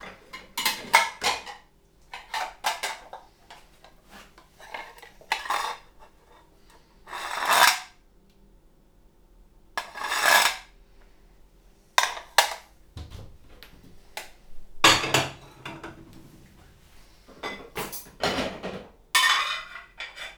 Does this sound like something being put away?
yes